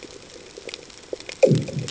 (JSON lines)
{"label": "anthrophony, bomb", "recorder": "HydroMoth"}